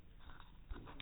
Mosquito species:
no mosquito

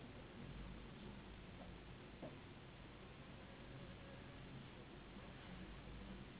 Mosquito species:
Anopheles gambiae s.s.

